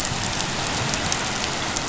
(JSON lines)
{"label": "anthrophony, boat engine", "recorder": "SoundTrap 500"}